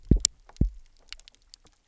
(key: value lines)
label: biophony, double pulse
recorder: SoundTrap 300